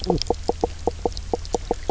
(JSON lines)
{"label": "biophony, knock croak", "recorder": "SoundTrap 300"}